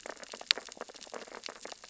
{"label": "biophony, sea urchins (Echinidae)", "recorder": "SoundTrap 600 or HydroMoth"}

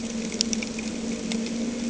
{"label": "anthrophony, boat engine", "recorder": "HydroMoth"}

